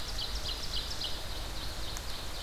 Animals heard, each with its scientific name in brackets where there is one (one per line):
Ovenbird (Seiurus aurocapilla)